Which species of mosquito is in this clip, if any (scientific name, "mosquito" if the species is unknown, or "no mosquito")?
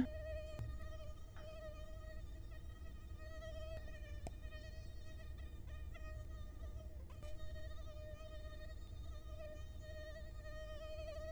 Culex quinquefasciatus